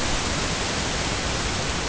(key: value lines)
label: ambient
recorder: HydroMoth